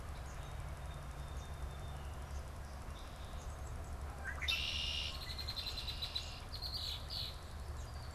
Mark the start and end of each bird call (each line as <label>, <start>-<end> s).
Song Sparrow (Melospiza melodia), 0.0-3.8 s
Red-winged Blackbird (Agelaius phoeniceus), 4.3-7.9 s